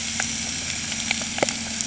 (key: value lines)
label: anthrophony, boat engine
recorder: HydroMoth